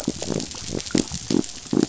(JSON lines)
{"label": "biophony", "recorder": "SoundTrap 500"}